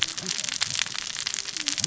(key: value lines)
label: biophony, cascading saw
recorder: SoundTrap 600 or HydroMoth